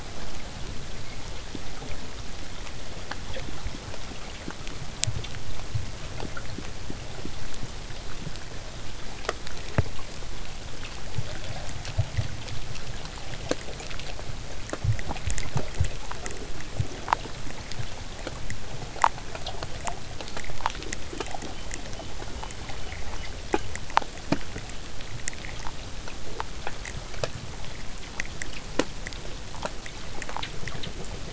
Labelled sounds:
20.2	23.8	killer whale, southern resident, whistle, 2.8 to 3.4 kHz

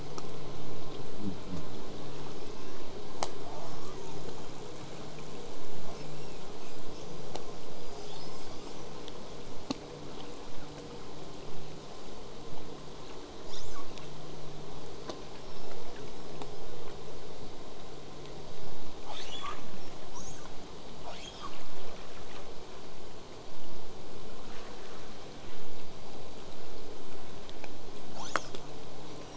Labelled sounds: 2.3	2.9	killer whale, southern resident, 1.0 to 8.0 kHz
3.4	4.2	killer whale, southern resident, 0.31 to 2.1 kHz
5.9	7.3	killer whale, southern resident, 1.9 to 8.0 kHz
7.1	8.9	killer whale, southern resident, L pod, call S19, 1.8 to 8.0 kHz
13.5	14.0	killer whale, southern resident, L pod, call S02iii, 0.38 to 8.0 kHz
15.4	15.7	killer whale, southern resident, whistle, 2.6 to 8.0 kHz
19.0	19.6	killer whale, southern resident, L pod, call S02iii, 0.42 to 8.0 kHz
20.1	20.5	killer whale, southern resident, L pod, call S02iii, 0.42 to 8.0 kHz
21.0	21.6	killer whale, southern resident, L pod, call S02iii, 0.42 to 8.0 kHz

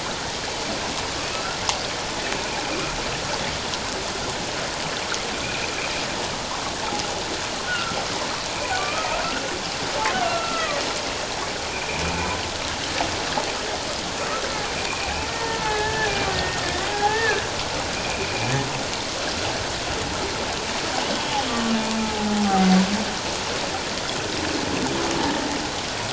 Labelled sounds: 1.2	1.6	humpback whale, 1.2 to 2.7 kHz
5.4	5.7	humpback whale, 2.2 to 2.7 kHz
7.7	8.0	humpback whale, 1.3 to 1.5 kHz
8.5	9.2	humpback whale, 1.1 to 2.5 kHz
10.1	10.8	humpback whale, 1.1 to 2.9 kHz
11.7	12.0	humpback whale, 2.3 to 2.6 kHz
14.9	18.3	humpback whale, 0.78 to 2.7 kHz
21.5	21.7	humpback whale, 1.1 to 1.2 kHz
22.0	22.7	humpback whale, 0.78 to 0.91 kHz

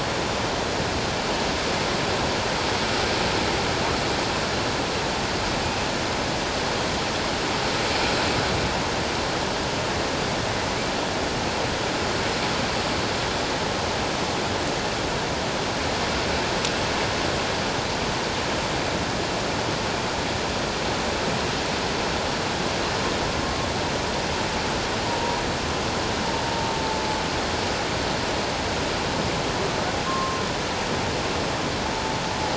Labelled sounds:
23.4	23.7	humpback whale, 1.1 to 1.2 kHz
26.5	26.8	humpback whale, 0.84 to 0.97 kHz
30.1	30.4	humpback whale, 1.0 to 1.1 kHz

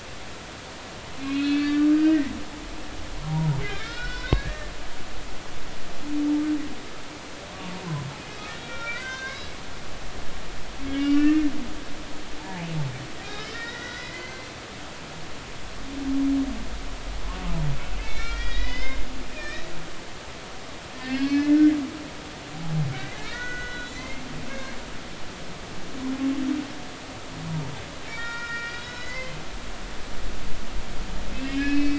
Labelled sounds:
0.0	2.3	humpback whale, 1.1 to 5.3 kHz
3.6	4.7	humpback whale, 1.3 to 5.5 kHz
8.6	9.5	humpback whale, 1.3 to 5.9 kHz
10.9	11.4	humpback whale, 1.4 to 3.0 kHz
12.4	12.7	humpback whale, 0.83 to 0.99 kHz
13.2	14.5	humpback whale, 1.3 to 4.7 kHz
18.0	19.7	humpback whale, 1.3 to 5.3 kHz
21.0	22.5	humpback whale, 1.4 to 4.6 kHz
23.0	24.2	humpback whale, 1.2 to 6.4 kHz
24.5	24.8	humpback whale, 1.5 to 1.8 kHz
28.1	29.4	humpback whale, 1.3 to 7.1 kHz
31.3	31.9	humpback whale, 2.1 to 5.2 kHz

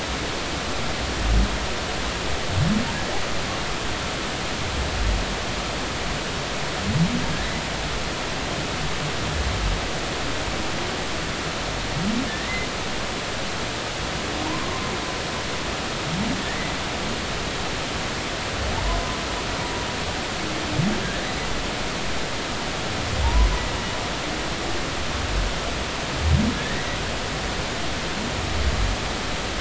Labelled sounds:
14.5	14.9	humpback whale, 0.90 to 1.1 kHz
16.4	16.8	humpback whale, 1.7 to 2.1 kHz
23.2	23.5	humpback whale, 0.83 to 1.1 kHz
26.5	26.8	humpback whale, 1.6 to 2.0 kHz

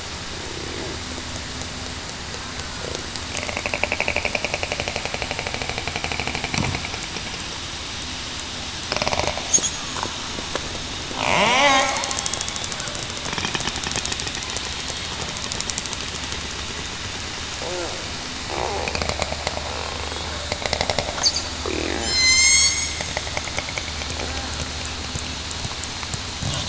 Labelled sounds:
11.4	12.5	killer whale, southern resident, 0.45 to 3.4 kHz
21.9	22.7	killer whale, southern resident, 1.0 to 8.0 kHz

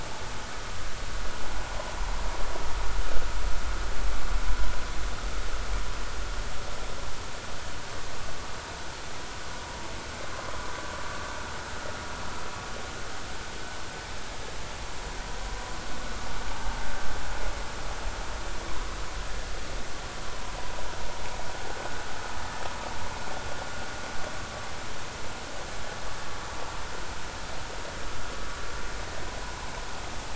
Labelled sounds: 29.4	29.7	vessel noise, 0.80 to 1.1 kHz

